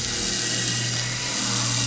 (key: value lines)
label: anthrophony, boat engine
recorder: SoundTrap 500